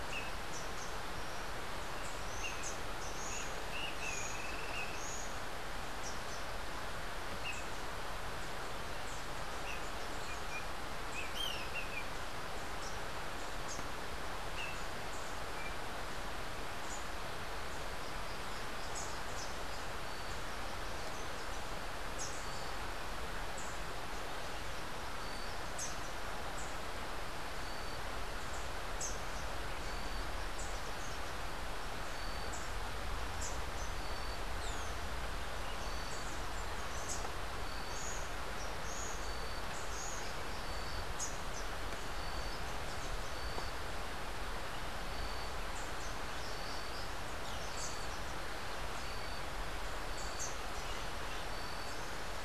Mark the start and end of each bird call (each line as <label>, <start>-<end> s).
Dusky-capped Flycatcher (Myiarchus tuberculifer), 0.0-0.2 s
Rufous-capped Warbler (Basileuterus rufifrons), 2.1-6.7 s
Dusky-capped Flycatcher (Myiarchus tuberculifer), 2.4-2.7 s
Dusky-capped Flycatcher (Myiarchus tuberculifer), 3.3-5.1 s
Dusky-capped Flycatcher (Myiarchus tuberculifer), 7.4-7.7 s
Rufous-capped Warbler (Basileuterus rufifrons), 11.0-14.2 s
Dusky-capped Flycatcher (Myiarchus tuberculifer), 14.5-14.8 s
Dusky-capped Flycatcher (Myiarchus tuberculifer), 15.5-15.8 s
Rufous-capped Warbler (Basileuterus rufifrons), 18.0-20.5 s
Rufous-capped Warbler (Basileuterus rufifrons), 22.1-23.8 s
Rufous-capped Warbler (Basileuterus rufifrons), 25.0-39.6 s
Rufous-capped Warbler (Basileuterus rufifrons), 45.6-50.7 s